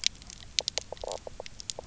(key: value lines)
label: biophony, knock croak
recorder: SoundTrap 300